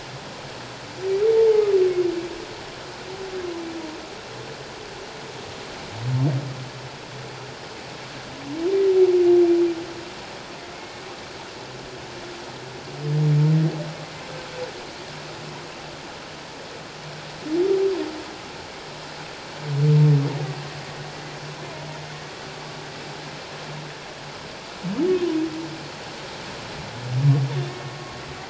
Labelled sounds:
1.4	1.6	humpback whale, 0.81 to 0.94 kHz
10.7	11.0	humpback whale, 2.1 to 2.2 kHz

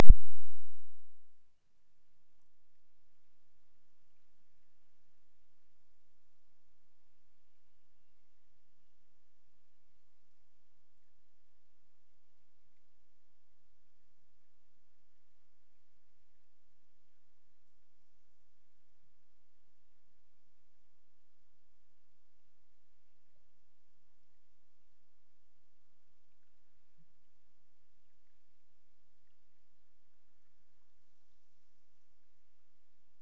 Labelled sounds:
7.4	9.4	killer whale, Bigg's (transient), Gulf of Alaska transient, 1.7 to 3.1 kHz

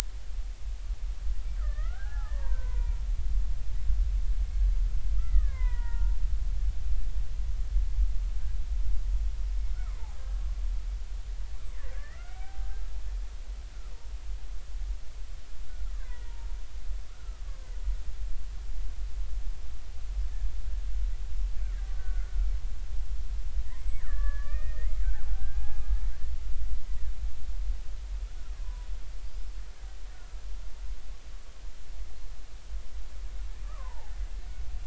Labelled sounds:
1.6	3.0	killer whale, Bigg's (transient), 0.80 to 2.2 kHz
5.2	6.2	killer whale, Bigg's (transient), 0.86 to 2.3 kHz
9.8	10.4	killer whale, Bigg's (transient), 0.80 to 1.7 kHz
11.9	12.8	killer whale, Bigg's (transient), 0.80 to 2.1 kHz
15.9	17.6	killer whale, Bigg's (transient), 0.86 to 2.1 kHz
22.0	22.4	killer whale, Bigg's (transient), 1.3 to 1.6 kHz
23.7	25.0	killer whale, Bigg's (transient), 1.1 to 7.8 kHz
25.3	26.1	killer whale, Bigg's (transient), 0.80 to 2.5 kHz
28.5	28.9	killer whale, Bigg's (transient), 0.93 to 1.2 kHz
30.1	30.4	killer whale, Bigg's (transient), 1.3 to 1.5 kHz
33.6	34.1	killer whale, Bigg's (transient), 0.80 to 1.3 kHz

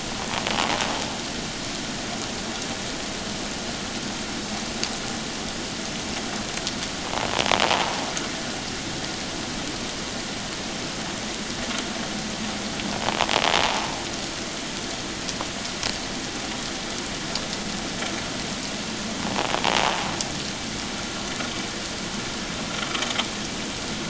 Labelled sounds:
13.6	13.9	invertebrate grinding on or near the hydrophone, 0.81 to 1.0 kHz

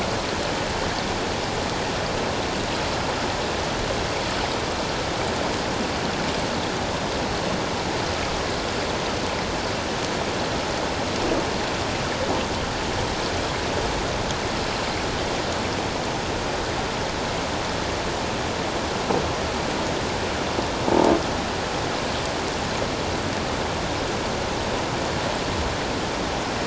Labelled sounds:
20.9	21.1	croaking sound likely from a nearby submerged object, 0.78 to 0.97 kHz

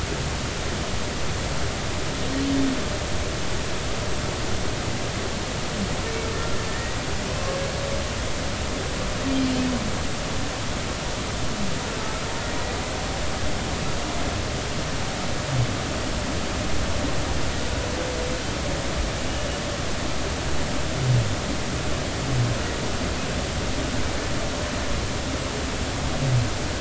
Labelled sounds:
6.7	7.0	humpback whale, 1.7 to 2.0 kHz
9.3	9.7	humpback whale, 3.0 to 3.2 kHz

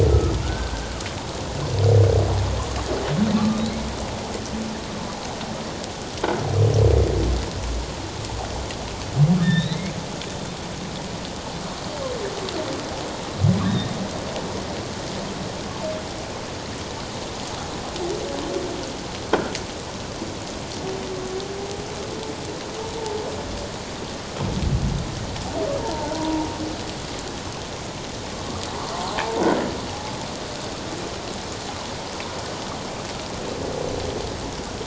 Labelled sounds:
0.1	1.0	humpback whale, 1.2 to 1.6 kHz
3.4	3.8	humpback whale, 1.1 to 4.2 kHz
9.4	10.0	humpback whale, 1.6 to 4.2 kHz
13.6	13.9	humpback whale, 1.6 to 1.9 kHz
25.8	26.5	humpback whale, 0.81 to 1.0 kHz
29.1	29.4	humpback whale, 0.78 to 0.97 kHz

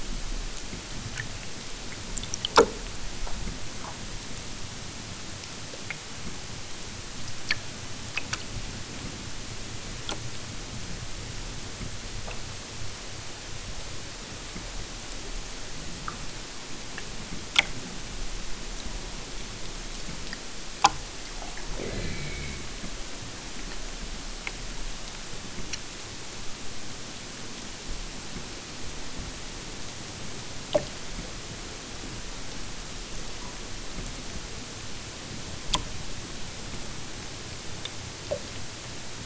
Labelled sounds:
21.7	22.7	killer whale, southern Alaska resident, 0 to 4.5 kHz

